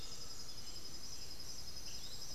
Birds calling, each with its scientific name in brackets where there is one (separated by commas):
White-winged Becard (Pachyramphus polychopterus), Piratic Flycatcher (Legatus leucophaius), Undulated Tinamou (Crypturellus undulatus)